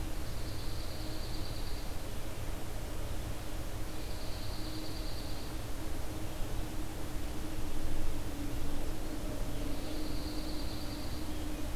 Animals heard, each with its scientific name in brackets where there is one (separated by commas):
Dark-eyed Junco (Junco hyemalis)